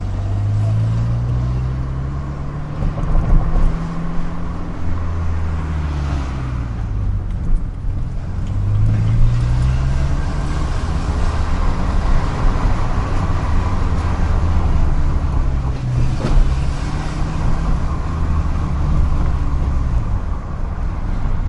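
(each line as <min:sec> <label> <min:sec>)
0:00.0 A car engine roars loudly on the highway. 0:21.5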